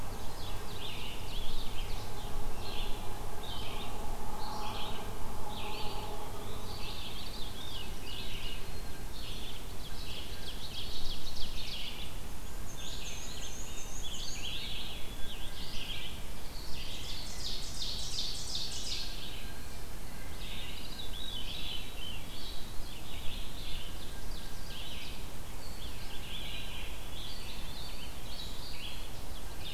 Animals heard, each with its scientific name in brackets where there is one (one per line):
Ovenbird (Seiurus aurocapilla)
Red-eyed Vireo (Vireo olivaceus)
Blue Jay (Cyanocitta cristata)
Veery (Catharus fuscescens)
Eastern Wood-Pewee (Contopus virens)
Black-capped Chickadee (Poecile atricapillus)
Black-and-white Warbler (Mniotilta varia)